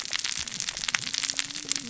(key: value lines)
label: biophony, cascading saw
recorder: SoundTrap 600 or HydroMoth